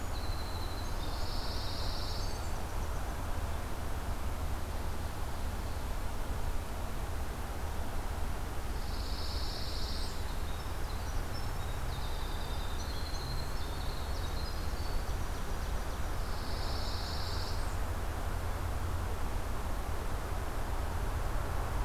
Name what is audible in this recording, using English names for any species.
Winter Wren, Pine Warbler, Blackburnian Warbler